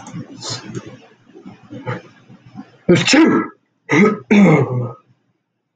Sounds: Sneeze